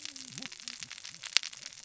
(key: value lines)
label: biophony, cascading saw
recorder: SoundTrap 600 or HydroMoth